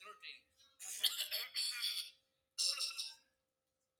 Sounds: Throat clearing